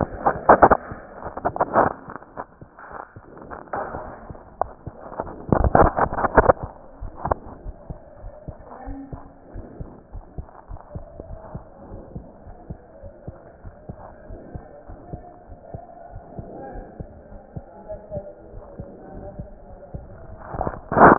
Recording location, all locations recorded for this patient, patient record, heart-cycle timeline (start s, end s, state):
aortic valve (AV)
aortic valve (AV)+pulmonary valve (PV)+tricuspid valve (TV)+mitral valve (MV)
#Age: Child
#Sex: Male
#Height: 116.0 cm
#Weight: 22.5 kg
#Pregnancy status: False
#Murmur: Absent
#Murmur locations: nan
#Most audible location: nan
#Systolic murmur timing: nan
#Systolic murmur shape: nan
#Systolic murmur grading: nan
#Systolic murmur pitch: nan
#Systolic murmur quality: nan
#Diastolic murmur timing: nan
#Diastolic murmur shape: nan
#Diastolic murmur grading: nan
#Diastolic murmur pitch: nan
#Diastolic murmur quality: nan
#Outcome: Abnormal
#Campaign: 2015 screening campaign
0.00	7.62	unannotated
7.62	7.74	S1
7.74	7.86	systole
7.86	8.00	S2
8.00	8.22	diastole
8.22	8.32	S1
8.32	8.44	systole
8.44	8.56	S2
8.56	8.84	diastole
8.84	9.00	S1
9.00	9.10	systole
9.10	9.24	S2
9.24	9.52	diastole
9.52	9.66	S1
9.66	9.76	systole
9.76	9.88	S2
9.88	10.14	diastole
10.14	10.24	S1
10.24	10.36	systole
10.36	10.46	S2
10.46	10.70	diastole
10.70	10.80	S1
10.80	10.92	systole
10.92	11.02	S2
11.02	11.28	diastole
11.28	11.40	S1
11.40	11.52	systole
11.52	11.62	S2
11.62	11.90	diastole
11.90	12.04	S1
12.04	12.14	systole
12.14	12.24	S2
12.24	12.48	diastole
12.48	12.56	S1
12.56	12.68	systole
12.68	12.78	S2
12.78	13.02	diastole
13.02	13.12	S1
13.12	13.24	systole
13.24	13.36	S2
13.36	13.62	diastole
13.62	13.74	S1
13.74	13.87	systole
13.87	13.96	S2
13.96	14.28	diastole
14.28	14.42	S1
14.42	14.52	systole
14.52	14.62	S2
14.62	14.87	diastole
14.87	15.00	S1
15.00	15.10	systole
15.10	15.22	S2
15.22	15.47	diastole
15.47	15.60	S1
15.60	15.72	systole
15.72	15.82	S2
15.82	16.14	diastole
16.14	16.24	S1
16.24	16.36	systole
16.36	16.46	S2
16.46	16.72	diastole
16.72	16.86	S1
16.86	16.98	systole
16.98	17.08	S2
17.08	17.32	diastole
17.32	17.42	S1
17.42	17.54	systole
17.54	17.64	S2
17.64	17.89	diastole
17.89	18.00	S1
18.00	18.12	systole
18.12	18.24	S2
18.24	18.54	diastole
18.54	18.66	S1
18.66	18.78	systole
18.78	18.90	S2
18.90	19.14	diastole
19.14	19.26	S1
19.26	19.36	systole
19.36	19.48	S2
19.48	19.68	diastole
19.68	19.80	S1
19.80	19.92	systole
19.92	20.03	S2
20.03	21.18	unannotated